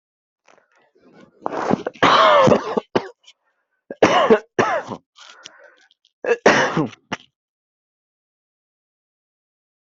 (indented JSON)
{
  "expert_labels": [
    {
      "quality": "good",
      "cough_type": "dry",
      "dyspnea": false,
      "wheezing": false,
      "stridor": false,
      "choking": false,
      "congestion": false,
      "nothing": false,
      "diagnosis": "upper respiratory tract infection",
      "severity": "mild"
    }
  ]
}